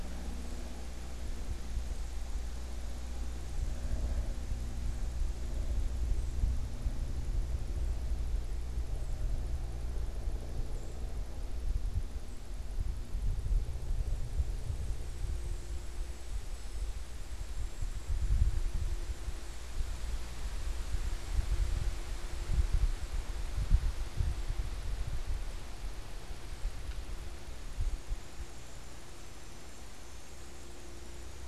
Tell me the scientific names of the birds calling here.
unidentified bird